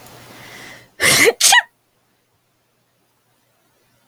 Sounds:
Sneeze